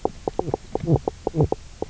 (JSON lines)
{"label": "biophony, knock croak", "recorder": "SoundTrap 300"}